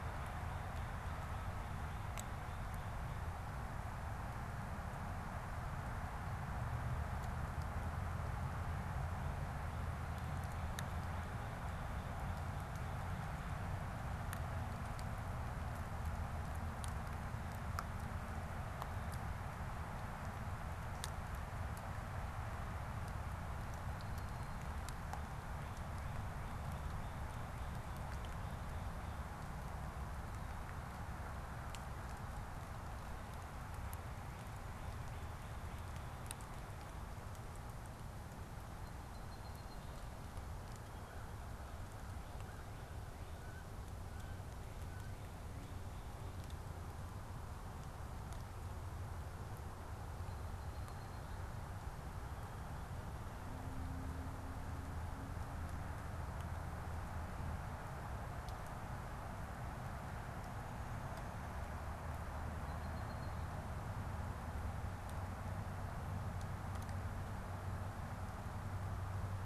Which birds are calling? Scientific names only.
Melospiza melodia, Corvus brachyrhynchos, unidentified bird